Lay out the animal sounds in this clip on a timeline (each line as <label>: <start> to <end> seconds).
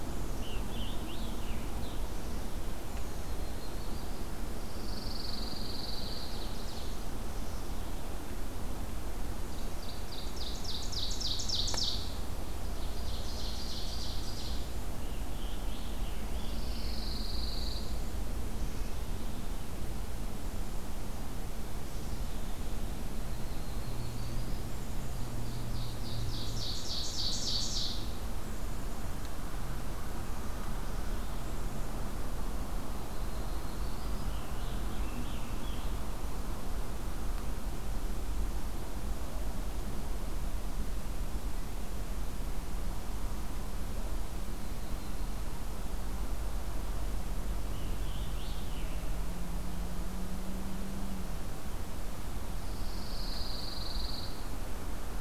Scarlet Tanager (Piranga olivacea): 0.0 to 2.2 seconds
Prairie Warbler (Setophaga discolor): 2.5 to 4.4 seconds
Pine Warbler (Setophaga pinus): 4.6 to 6.6 seconds
Ovenbird (Seiurus aurocapilla): 6.0 to 6.9 seconds
Ovenbird (Seiurus aurocapilla): 9.4 to 14.9 seconds
Scarlet Tanager (Piranga olivacea): 14.9 to 16.6 seconds
Pine Warbler (Setophaga pinus): 16.4 to 18.1 seconds
Prairie Warbler (Setophaga discolor): 22.9 to 24.9 seconds
Black-capped Chickadee (Poecile atricapillus): 24.5 to 25.9 seconds
Ovenbird (Seiurus aurocapilla): 25.3 to 28.3 seconds
Black-capped Chickadee (Poecile atricapillus): 28.3 to 29.3 seconds
Prairie Warbler (Setophaga discolor): 32.9 to 34.3 seconds
Scarlet Tanager (Piranga olivacea): 34.3 to 36.2 seconds
Scarlet Tanager (Piranga olivacea): 47.6 to 48.8 seconds
Pine Warbler (Setophaga pinus): 52.4 to 54.5 seconds